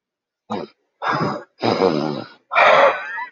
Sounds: Sigh